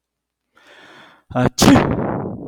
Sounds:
Sneeze